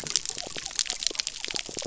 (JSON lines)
{"label": "biophony", "recorder": "SoundTrap 300"}